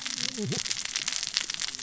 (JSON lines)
{"label": "biophony, cascading saw", "recorder": "SoundTrap 600 or HydroMoth"}